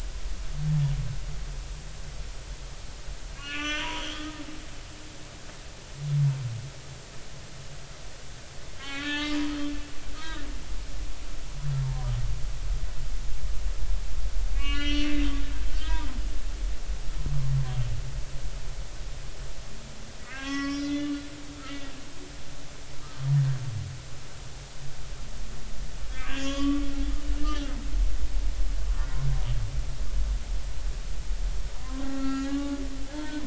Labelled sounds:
3.4	4.4	humpback whale, 0.90 to 6.0 kHz
8.8	9.4	humpback whale, 1.0 to 4.2 kHz
10.2	10.5	humpback whale, 1.2 to 4.0 kHz
14.5	15.2	humpback whale, 1.1 to 6.0 kHz
15.7	16.0	humpback whale, 1.5 to 2.0 kHz
20.2	21.2	humpback whale, 1.0 to 5.5 kHz
24.0	24.3	humpback whale, 1.2 to 1.3 kHz
26.1	26.9	humpback whale, 0.99 to 7.1 kHz
27.2	27.7	humpback whale, 2.8 to 3.1 kHz
32.0	33.4	humpback whale, 0.86 to 4.4 kHz

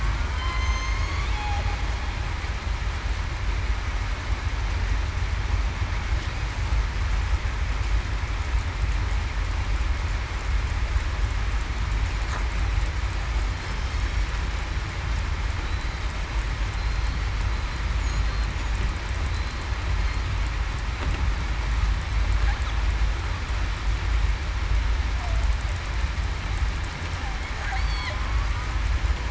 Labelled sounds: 0.4	1.0	killer whale, southern resident, 3.1 to 3.2 kHz
16.7	17.1	killer whale, southern resident, 4.1 to 4.2 kHz
19.3	19.7	killer whale, southern resident, 4.0 to 4.2 kHz
27.7	28.1	killer whale, southern resident, 4.1 to 4.7 kHz

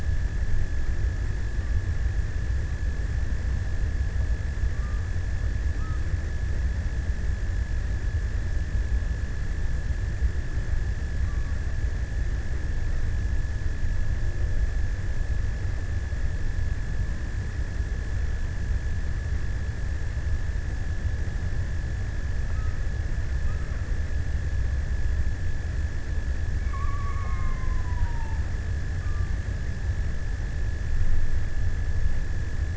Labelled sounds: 3.4	7.0	killer whale, offshore, 0.82 to 1.5 kHz
10.4	12.2	killer whale, offshore, 0.95 to 1.3 kHz
25.8	28.9	killer whale, offshore, 0.66 to 2.6 kHz

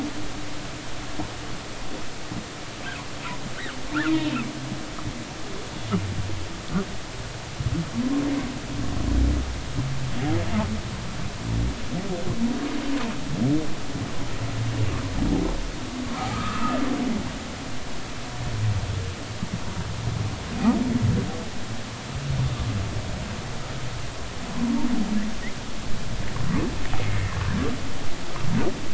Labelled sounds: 3.9	4.2	humpback whale, 1.2 to 1.9 kHz
16.1	16.8	humpback whale, 1.1 to 2.7 kHz
27.0	27.3	humpback whale, 2.0 to 2.2 kHz

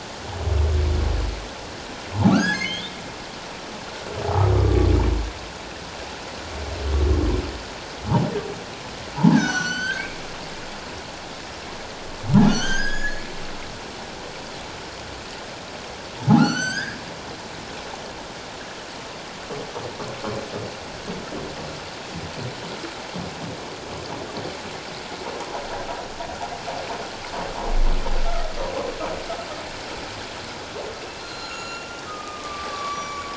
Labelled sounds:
2.1	3.0	humpback whale, 0.78 to 6.8 kHz
9.3	10.1	humpback whale, 1.4 to 7.9 kHz
12.4	13.2	humpback whale, 1.3 to 8.0 kHz
16.2	17.0	humpback whale, 0.78 to 8.0 kHz
31.2	33.3	humpback whale, 1.0 to 7.0 kHz

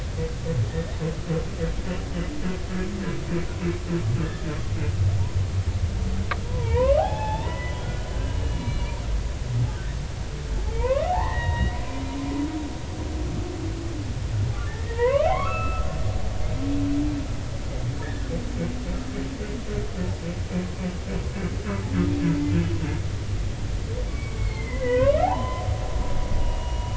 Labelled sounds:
0.7	1.0	humpback whale, 1.7 to 2.0 kHz
6.4	7.8	humpback whale, 0.80 to 3.7 kHz
8.1	9.1	humpback whale, 1.4 to 4.1 kHz
10.7	11.8	humpback whale, 0.80 to 3.9 kHz
14.7	15.9	humpback whale, 0.86 to 2.7 kHz
18.0	18.3	humpback whale, 1.6 to 2.0 kHz
24.1	25.6	humpback whale, 0.80 to 4.4 kHz
26.4	26.9	humpback whale, 2.8 to 3.0 kHz

